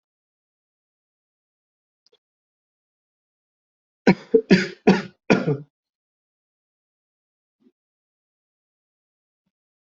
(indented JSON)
{
  "expert_labels": [
    {
      "quality": "ok",
      "cough_type": "unknown",
      "dyspnea": false,
      "wheezing": false,
      "stridor": false,
      "choking": false,
      "congestion": false,
      "nothing": true,
      "diagnosis": "healthy cough",
      "severity": "pseudocough/healthy cough"
    }
  ],
  "age": 25,
  "gender": "male",
  "respiratory_condition": false,
  "fever_muscle_pain": false,
  "status": "healthy"
}